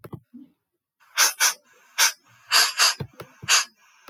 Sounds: Sniff